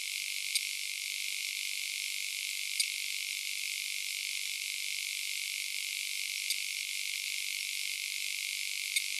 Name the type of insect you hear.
orthopteran